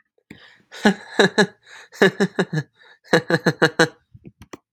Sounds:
Laughter